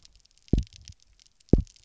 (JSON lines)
{"label": "biophony, double pulse", "recorder": "SoundTrap 300"}